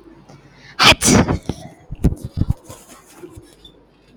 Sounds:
Sneeze